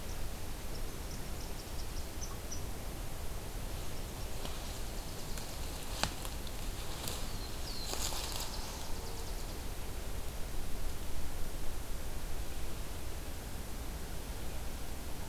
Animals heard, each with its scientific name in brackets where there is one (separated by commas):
unidentified call, Black-throated Blue Warbler (Setophaga caerulescens), Nashville Warbler (Leiothlypis ruficapilla)